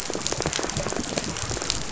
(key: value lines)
label: biophony, rattle
recorder: SoundTrap 500